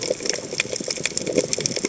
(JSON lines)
{"label": "biophony, chatter", "recorder": "HydroMoth"}